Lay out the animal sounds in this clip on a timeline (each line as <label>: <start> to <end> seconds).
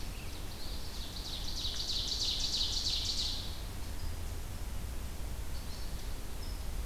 Ovenbird (Seiurus aurocapilla): 0.0 to 3.6 seconds
Eastern Phoebe (Sayornis phoebe): 5.5 to 6.3 seconds